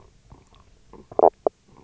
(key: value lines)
label: biophony, knock croak
recorder: SoundTrap 300